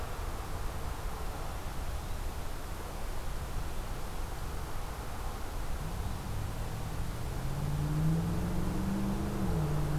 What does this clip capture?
forest ambience